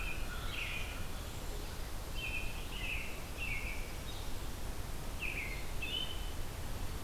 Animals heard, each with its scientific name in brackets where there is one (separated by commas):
American Crow (Corvus brachyrhynchos), American Robin (Turdus migratorius), Red-eyed Vireo (Vireo olivaceus)